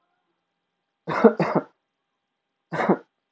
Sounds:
Cough